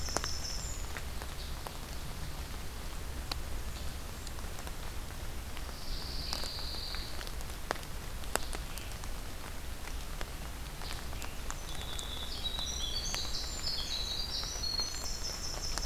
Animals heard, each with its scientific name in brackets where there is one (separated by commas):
Scarlet Tanager (Piranga olivacea), Pine Warbler (Setophaga pinus), Winter Wren (Troglodytes hiemalis)